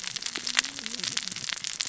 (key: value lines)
label: biophony, cascading saw
recorder: SoundTrap 600 or HydroMoth